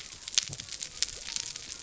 {"label": "biophony", "recorder": "SoundTrap 300"}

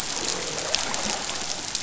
{"label": "biophony, croak", "recorder": "SoundTrap 500"}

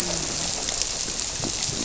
{"label": "biophony", "recorder": "SoundTrap 300"}
{"label": "biophony, grouper", "recorder": "SoundTrap 300"}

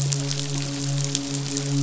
{"label": "biophony, midshipman", "recorder": "SoundTrap 500"}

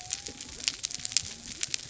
{"label": "biophony", "recorder": "SoundTrap 300"}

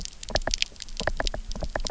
{"label": "biophony, knock", "recorder": "SoundTrap 300"}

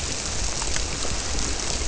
{"label": "biophony", "recorder": "SoundTrap 300"}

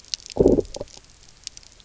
{"label": "biophony, low growl", "recorder": "SoundTrap 300"}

